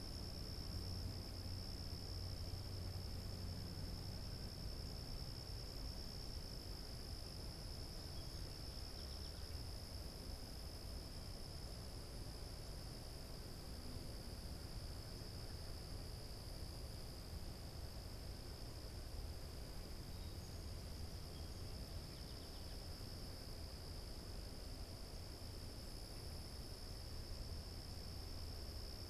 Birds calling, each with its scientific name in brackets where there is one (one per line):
Song Sparrow (Melospiza melodia)